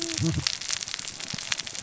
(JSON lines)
{"label": "biophony, cascading saw", "recorder": "SoundTrap 600 or HydroMoth"}